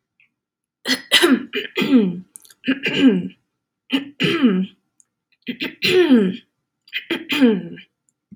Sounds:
Throat clearing